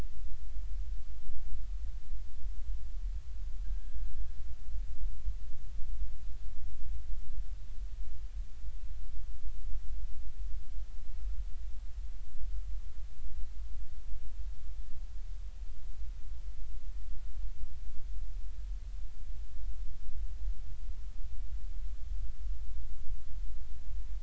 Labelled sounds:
3.6	4.3	killer whale, northern resident, G clan, 1.5 to 1.7 kHz

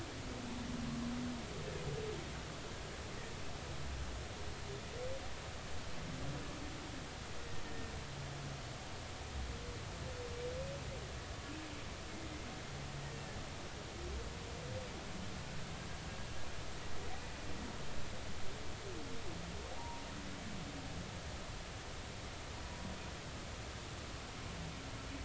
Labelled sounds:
19.8	20.0	humpback whale, 0.80 to 0.99 kHz

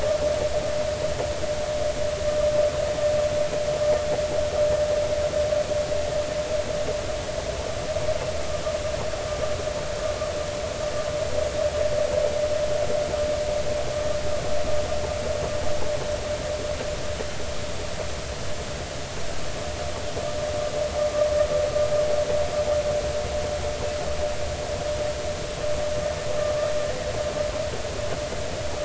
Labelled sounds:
26.8	27.1	vessel noise, 1.7 to 2.0 kHz

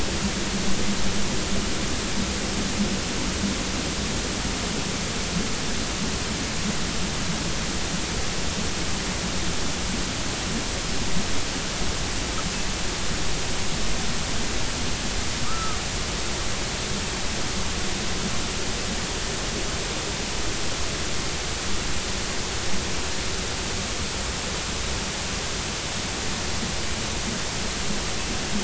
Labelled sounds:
15.4	15.8	killer whale, northern resident, A clan, AB subclan, 1.1 to 1.4 kHz

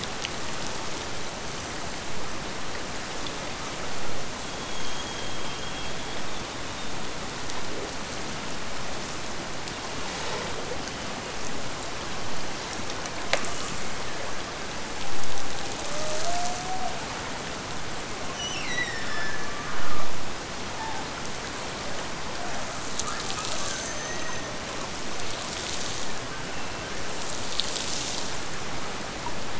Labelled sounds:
13.4	14.4	killer whale, Bigg's (transient), Gulf of Alaska transient, 1.5 to 3.0 kHz
18.3	20.1	killer whale, Bigg's (transient), Gulf of Alaska transient, 1.1 to 8.0 kHz

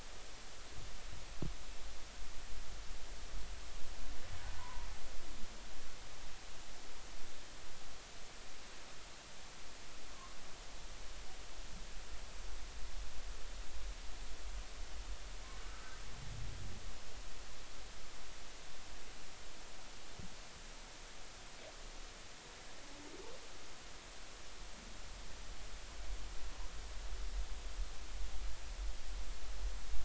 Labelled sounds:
4.6	4.9	humpback whale, 0.90 to 1.1 kHz
15.7	16.0	humpback whale, 1.2 to 1.6 kHz

